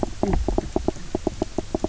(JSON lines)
{"label": "biophony, knock croak", "recorder": "SoundTrap 300"}